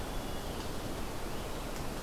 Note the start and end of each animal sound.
0.0s-0.7s: Hermit Thrush (Catharus guttatus)
0.0s-2.0s: Scarlet Tanager (Piranga olivacea)

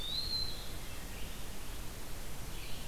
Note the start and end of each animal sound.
0.0s-0.7s: Eastern Wood-Pewee (Contopus virens)
0.0s-2.9s: Red-eyed Vireo (Vireo olivaceus)
0.6s-1.3s: Wood Thrush (Hylocichla mustelina)

